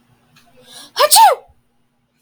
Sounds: Sneeze